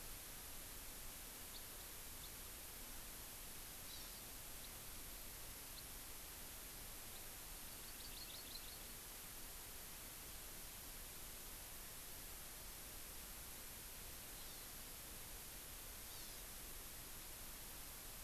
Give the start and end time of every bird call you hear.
1.5s-1.6s: House Finch (Haemorhous mexicanus)
2.1s-2.3s: House Finch (Haemorhous mexicanus)
3.8s-4.2s: Hawaii Amakihi (Chlorodrepanis virens)
4.6s-4.7s: House Finch (Haemorhous mexicanus)
5.7s-5.8s: House Finch (Haemorhous mexicanus)
7.1s-7.2s: House Finch (Haemorhous mexicanus)
7.6s-9.1s: Hawaii Amakihi (Chlorodrepanis virens)
14.3s-14.7s: Hawaii Amakihi (Chlorodrepanis virens)
16.0s-16.4s: Hawaii Amakihi (Chlorodrepanis virens)

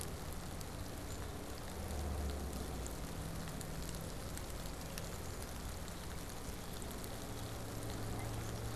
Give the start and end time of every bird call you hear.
0.9s-1.5s: Black-capped Chickadee (Poecile atricapillus)

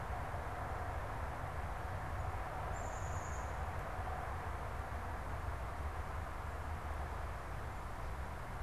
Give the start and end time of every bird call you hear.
2.6s-3.8s: Black-capped Chickadee (Poecile atricapillus)

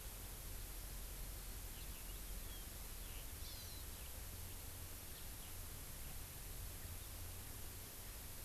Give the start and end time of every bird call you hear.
3.4s-3.8s: Hawaii Amakihi (Chlorodrepanis virens)

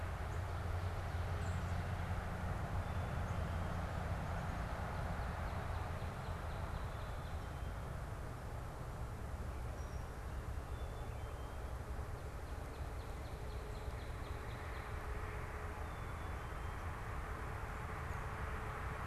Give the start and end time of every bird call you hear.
2.8s-3.8s: Black-capped Chickadee (Poecile atricapillus)
4.6s-7.8s: Northern Cardinal (Cardinalis cardinalis)
9.7s-10.1s: unidentified bird
10.6s-11.6s: Black-capped Chickadee (Poecile atricapillus)
12.3s-15.0s: Northern Cardinal (Cardinalis cardinalis)
15.8s-16.9s: Black-capped Chickadee (Poecile atricapillus)

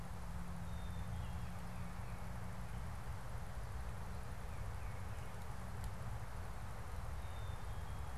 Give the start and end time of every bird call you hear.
0.4s-1.6s: Black-capped Chickadee (Poecile atricapillus)
1.1s-2.4s: Baltimore Oriole (Icterus galbula)
1.2s-2.4s: Tufted Titmouse (Baeolophus bicolor)
4.2s-5.6s: Tufted Titmouse (Baeolophus bicolor)
7.0s-8.1s: Black-capped Chickadee (Poecile atricapillus)

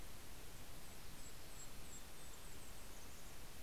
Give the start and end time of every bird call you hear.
0.0s-3.6s: Golden-crowned Kinglet (Regulus satrapa)
0.7s-3.6s: Mountain Chickadee (Poecile gambeli)
2.4s-3.6s: Red-breasted Nuthatch (Sitta canadensis)

